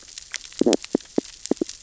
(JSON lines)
{"label": "biophony, stridulation", "recorder": "SoundTrap 600 or HydroMoth"}